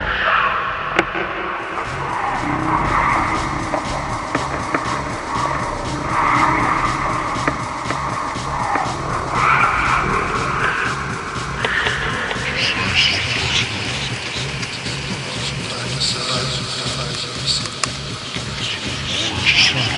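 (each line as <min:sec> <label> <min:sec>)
0:00.0 A creature makes ominous sounds. 0:20.0
0:00.8 A speaker crackles as the microphone is connected. 0:01.5
0:01.6 A percussion instrument plays a rhythmic pattern. 0:20.0
0:02.5 A creature makes a deep, scary sound. 0:04.0
0:03.7 A speaker crackles as the microphone is connected. 0:04.9
0:06.0 A creature makes a deep, scary sound. 0:07.1
0:07.4 A speaker crackles as the microphone is connected. 0:08.1
0:08.7 A speaker crackles as the microphone is connected. 0:08.9
0:09.1 A creature makes a deep, scary sound. 0:11.1
0:11.5 A speaker crackles as the microphone is connected. 0:12.5
0:12.4 A creature makes a deep, scary sound. 0:13.8
0:12.5 An ominous deep voice of a man speaking. 0:13.8
0:16.0 A man is speaking in an ominous voice. 0:17.9
0:18.8 An ominous deep voice of a man speaking. 0:20.0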